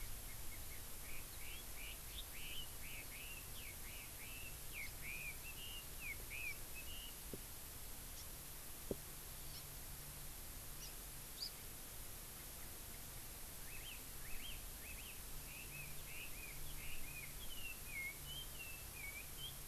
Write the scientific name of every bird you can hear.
Garrulax canorus, Haemorhous mexicanus, Chlorodrepanis virens